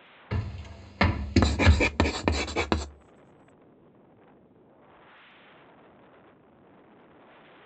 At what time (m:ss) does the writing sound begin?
0:01